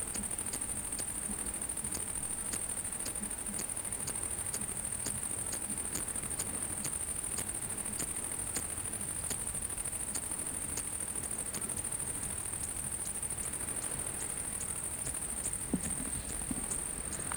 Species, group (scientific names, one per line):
Eupholidoptera smyrnensis
Orthoptera